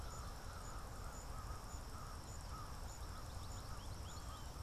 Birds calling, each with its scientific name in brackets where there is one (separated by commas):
American Goldfinch (Spinus tristis), American Crow (Corvus brachyrhynchos)